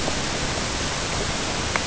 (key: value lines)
label: ambient
recorder: HydroMoth